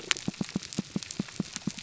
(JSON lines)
{"label": "biophony, pulse", "recorder": "SoundTrap 300"}